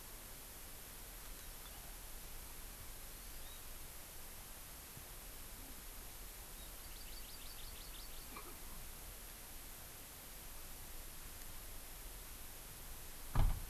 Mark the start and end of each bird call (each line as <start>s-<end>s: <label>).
3.1s-3.6s: Hawaii Amakihi (Chlorodrepanis virens)
6.8s-8.5s: Hawaii Amakihi (Chlorodrepanis virens)
8.3s-8.6s: Erckel's Francolin (Pternistis erckelii)